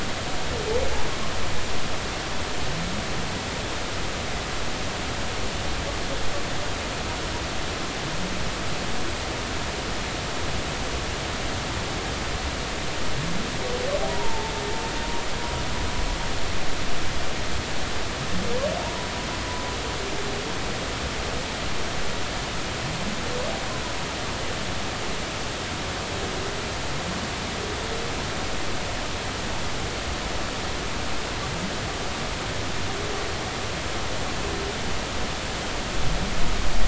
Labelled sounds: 14.1	14.5	humpback whale, 0.83 to 0.99 kHz
18.8	19.1	humpback whale, 0.83 to 1.1 kHz

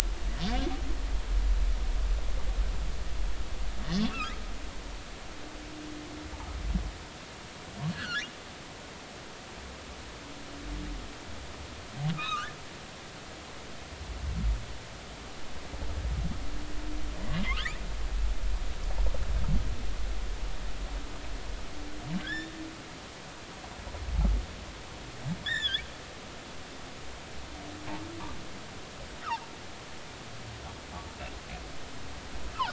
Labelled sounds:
3.9	4.4	humpback whale, 1.2 to 3.5 kHz
7.9	8.3	humpback whale, 1.3 to 4.6 kHz
12.1	12.5	humpback whale, 1.0 to 4.1 kHz
17.4	17.8	humpback whale, 0.93 to 3.8 kHz
22.2	22.6	humpback whale, 1.5 to 3.8 kHz
25.4	25.8	humpback whale, 1.5 to 5.6 kHz

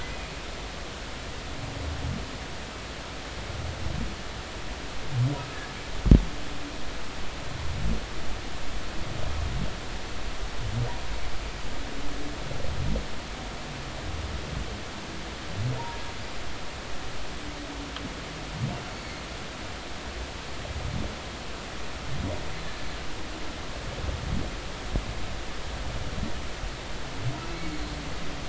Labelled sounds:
15.8	16.0	humpback whale, 0.86 to 0.99 kHz

